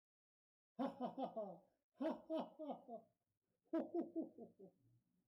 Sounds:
Laughter